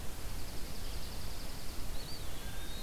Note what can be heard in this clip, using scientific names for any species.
Junco hyemalis, Contopus virens, Cyanocitta cristata